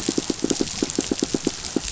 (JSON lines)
{"label": "biophony, pulse", "recorder": "SoundTrap 500"}